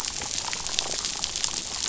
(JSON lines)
{"label": "biophony, damselfish", "recorder": "SoundTrap 500"}